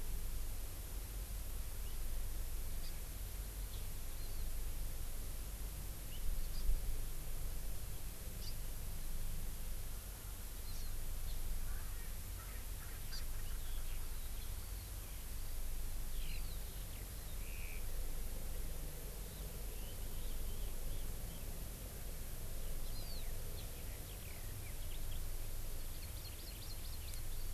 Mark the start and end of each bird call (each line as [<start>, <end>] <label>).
[2.82, 2.92] Hawaii Amakihi (Chlorodrepanis virens)
[4.22, 4.42] Hawaii Amakihi (Chlorodrepanis virens)
[6.52, 6.62] Hawaii Amakihi (Chlorodrepanis virens)
[8.42, 8.52] Hawaii Amakihi (Chlorodrepanis virens)
[10.72, 10.82] Hawaii Amakihi (Chlorodrepanis virens)
[11.52, 14.02] Erckel's Francolin (Pternistis erckelii)
[13.12, 13.22] Hawaii Amakihi (Chlorodrepanis virens)
[13.42, 17.82] Eurasian Skylark (Alauda arvensis)
[16.22, 16.52] Hawaii Amakihi (Chlorodrepanis virens)
[19.32, 21.42] Red-billed Leiothrix (Leiothrix lutea)
[22.92, 23.22] Hawaii Amakihi (Chlorodrepanis virens)
[25.92, 27.52] Hawaii Amakihi (Chlorodrepanis virens)